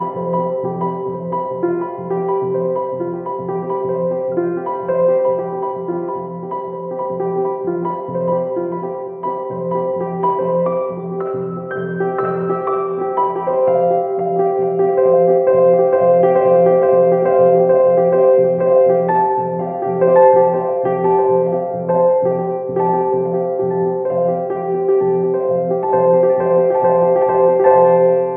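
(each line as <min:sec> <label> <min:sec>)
0:00.0 A classical piano piece with multiple pianos weaving a hypnotic rhythm and delicate, flowing harmonies. 0:28.4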